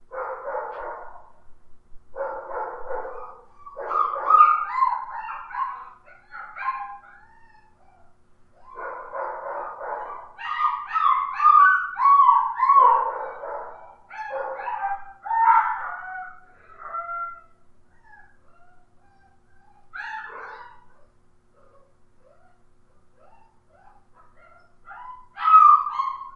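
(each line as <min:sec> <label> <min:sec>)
0:00.0 A dog barks repeatedly in the distance. 0:01.3
0:01.9 A dog barks repeatedly in the distance. 0:04.5
0:02.8 A dog whimpers sadly multiple times indoors. 0:07.7
0:08.7 A dog barks repeatedly in the distance. 0:10.5
0:09.4 A dog whimpers sadly multiple times indoors. 0:21.0
0:12.6 A dog barks repeatedly in the distance. 0:15.3
0:24.6 A dog is whimpering loudly indoors. 0:26.3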